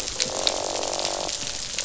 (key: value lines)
label: biophony, croak
recorder: SoundTrap 500